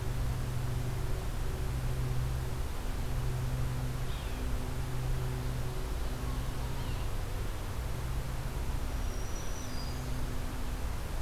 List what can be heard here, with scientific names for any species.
Sphyrapicus varius, Setophaga virens